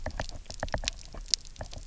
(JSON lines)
{"label": "biophony, knock", "recorder": "SoundTrap 300"}